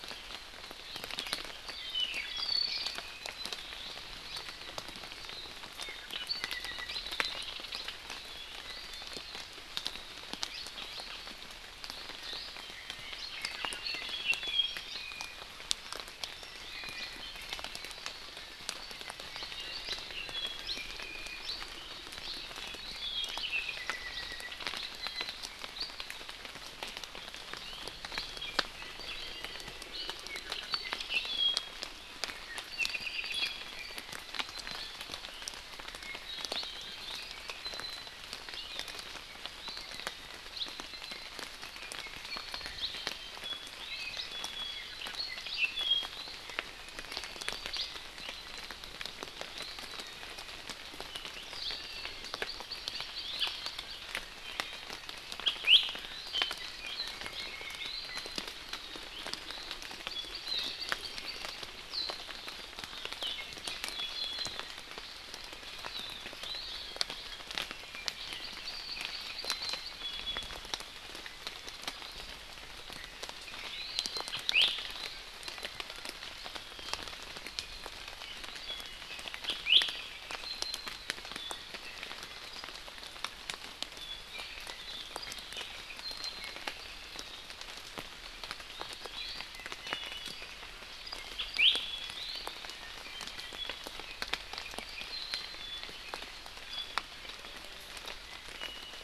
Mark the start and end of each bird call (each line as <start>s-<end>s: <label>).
1.6s-3.6s: Apapane (Himatione sanguinea)
5.7s-7.0s: Apapane (Himatione sanguinea)
13.1s-15.4s: Apapane (Himatione sanguinea)
16.6s-17.6s: Iiwi (Drepanis coccinea)
20.5s-21.4s: Iiwi (Drepanis coccinea)
22.7s-24.5s: Apapane (Himatione sanguinea)
24.9s-25.3s: Iiwi (Drepanis coccinea)
28.7s-31.7s: Apapane (Himatione sanguinea)
32.7s-33.8s: Apapane (Himatione sanguinea)
35.9s-38.1s: Apapane (Himatione sanguinea)
43.8s-45.0s: Iiwi (Drepanis coccinea)
44.9s-46.0s: Apapane (Himatione sanguinea)
52.2s-54.0s: Hawaii Amakihi (Chlorodrepanis virens)
55.4s-55.9s: Iiwi (Drepanis coccinea)
56.3s-58.3s: Apapane (Himatione sanguinea)
60.0s-61.4s: Hawaii Amakihi (Chlorodrepanis virens)
63.1s-64.6s: Iiwi (Drepanis coccinea)
66.4s-66.7s: Iiwi (Drepanis coccinea)
69.4s-70.6s: Iiwi (Drepanis coccinea)
73.6s-73.9s: Iiwi (Drepanis coccinea)
74.4s-74.7s: Iiwi (Drepanis coccinea)
79.4s-79.8s: Iiwi (Drepanis coccinea)
89.5s-90.3s: Iiwi (Drepanis coccinea)
91.3s-91.8s: Iiwi (Drepanis coccinea)
98.2s-99.0s: Iiwi (Drepanis coccinea)